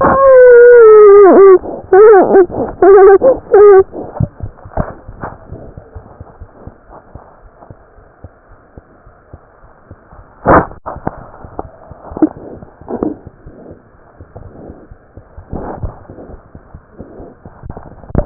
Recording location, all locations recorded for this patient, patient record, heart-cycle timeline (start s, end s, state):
pulmonary valve (PV)
pulmonary valve (PV)+mitral valve (MV)
#Age: Infant
#Sex: Female
#Height: nan
#Weight: nan
#Pregnancy status: False
#Murmur: Unknown
#Murmur locations: nan
#Most audible location: nan
#Systolic murmur timing: nan
#Systolic murmur shape: nan
#Systolic murmur grading: nan
#Systolic murmur pitch: nan
#Systolic murmur quality: nan
#Diastolic murmur timing: nan
#Diastolic murmur shape: nan
#Diastolic murmur grading: nan
#Diastolic murmur pitch: nan
#Diastolic murmur quality: nan
#Outcome: Abnormal
#Campaign: 2015 screening campaign
0.00	7.42	unannotated
7.42	7.49	S1
7.49	7.67	systole
7.67	7.75	S2
7.75	7.98	diastole
7.98	8.09	S1
8.09	8.21	systole
8.21	8.29	S2
8.29	8.49	diastole
8.49	8.57	S1
8.57	8.74	systole
8.74	8.82	S2
8.82	9.04	diastole
9.04	9.13	S1
9.13	9.30	systole
9.30	9.39	S2
9.39	9.60	diastole
9.60	9.69	S1
9.69	9.87	systole
9.87	9.97	S2
9.97	10.16	diastole
10.16	10.25	S1
10.25	18.26	unannotated